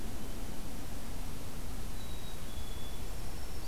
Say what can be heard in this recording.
Black-capped Chickadee, Black-throated Green Warbler